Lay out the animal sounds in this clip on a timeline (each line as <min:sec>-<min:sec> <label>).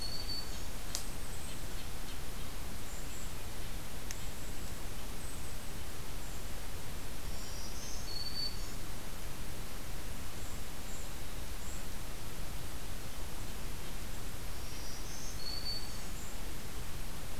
0:00.0-0:00.7 Black-throated Green Warbler (Setophaga virens)
0:00.0-0:02.8 Red-breasted Nuthatch (Sitta canadensis)
0:00.7-0:01.7 Golden-crowned Kinglet (Regulus satrapa)
0:02.7-0:06.4 Golden-crowned Kinglet (Regulus satrapa)
0:07.0-0:08.9 Black-throated Green Warbler (Setophaga virens)
0:10.3-0:11.9 Golden-crowned Kinglet (Regulus satrapa)
0:14.4-0:16.1 Black-throated Green Warbler (Setophaga virens)
0:15.6-0:16.3 Golden-crowned Kinglet (Regulus satrapa)